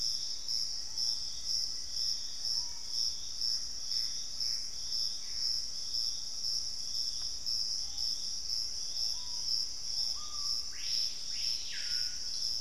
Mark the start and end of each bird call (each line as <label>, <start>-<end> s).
Screaming Piha (Lipaugus vociferans), 0.0-12.6 s
Black-faced Antthrush (Formicarius analis), 0.6-3.0 s
unidentified bird, 1.3-4.1 s
Gray Antbird (Cercomacra cinerascens), 3.3-5.7 s